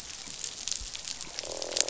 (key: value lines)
label: biophony, croak
recorder: SoundTrap 500